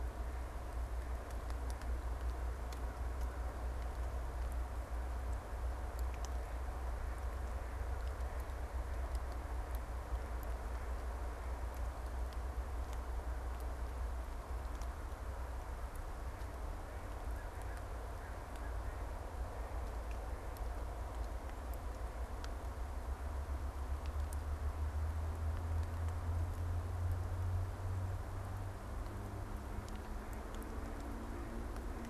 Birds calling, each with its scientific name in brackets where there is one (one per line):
American Crow (Corvus brachyrhynchos)
Mallard (Anas platyrhynchos)